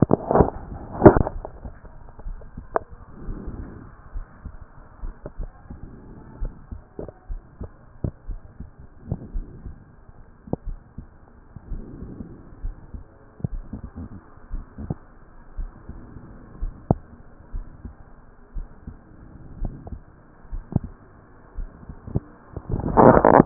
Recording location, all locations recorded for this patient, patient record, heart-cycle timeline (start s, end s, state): aortic valve (AV)
aortic valve (AV)+pulmonary valve (PV)+tricuspid valve (TV)+mitral valve (MV)
#Age: Adolescent
#Sex: Male
#Height: 166.0 cm
#Weight: 62.7 kg
#Pregnancy status: False
#Murmur: Absent
#Murmur locations: nan
#Most audible location: nan
#Systolic murmur timing: nan
#Systolic murmur shape: nan
#Systolic murmur grading: nan
#Systolic murmur pitch: nan
#Systolic murmur quality: nan
#Diastolic murmur timing: nan
#Diastolic murmur shape: nan
#Diastolic murmur grading: nan
#Diastolic murmur pitch: nan
#Diastolic murmur quality: nan
#Outcome: Abnormal
#Campaign: 2014 screening campaign
0.00	14.52	unannotated
14.52	14.64	S1
14.64	14.82	systole
14.82	14.94	S2
14.94	15.58	diastole
15.58	15.70	S1
15.70	15.90	systole
15.90	16.00	S2
16.00	16.62	diastole
16.62	16.74	S1
16.74	16.92	systole
16.92	17.00	S2
17.00	17.54	diastole
17.54	17.66	S1
17.66	17.84	systole
17.84	17.94	S2
17.94	18.56	diastole
18.56	18.68	S1
18.68	18.88	systole
18.88	18.96	S2
18.96	19.60	diastole
19.60	19.74	S1
19.74	19.92	systole
19.92	20.00	S2
20.00	20.52	diastole
20.52	20.64	S1
20.64	20.76	systole
20.76	20.88	S2
20.88	21.56	diastole
21.56	21.69	S1
21.69	21.88	systole
21.88	21.96	S2
21.96	22.70	diastole
22.70	23.46	unannotated